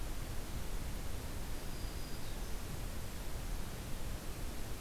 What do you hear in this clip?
Black-throated Green Warbler